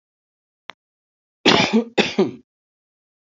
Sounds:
Cough